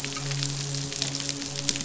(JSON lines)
{"label": "biophony, midshipman", "recorder": "SoundTrap 500"}